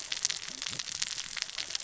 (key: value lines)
label: biophony, cascading saw
recorder: SoundTrap 600 or HydroMoth